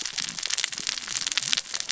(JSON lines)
{"label": "biophony, cascading saw", "recorder": "SoundTrap 600 or HydroMoth"}